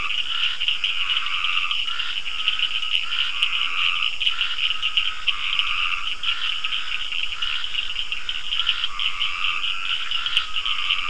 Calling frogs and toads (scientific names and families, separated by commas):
Dendropsophus nahdereri (Hylidae), Scinax perereca (Hylidae), Sphaenorhynchus surdus (Hylidae)